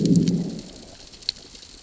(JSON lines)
{"label": "biophony, growl", "recorder": "SoundTrap 600 or HydroMoth"}